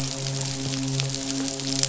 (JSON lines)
{"label": "biophony, midshipman", "recorder": "SoundTrap 500"}